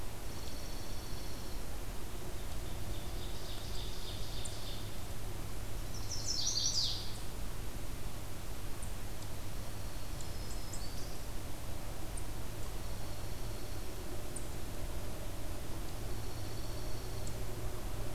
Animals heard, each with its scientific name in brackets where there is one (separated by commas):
Eastern Chipmunk (Tamias striatus), Black-throated Green Warbler (Setophaga virens), Dark-eyed Junco (Junco hyemalis), Chestnut-sided Warbler (Setophaga pensylvanica), Ovenbird (Seiurus aurocapilla)